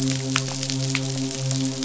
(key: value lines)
label: biophony, midshipman
recorder: SoundTrap 500